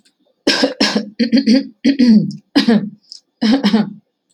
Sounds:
Cough